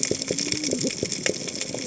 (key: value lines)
label: biophony, cascading saw
recorder: HydroMoth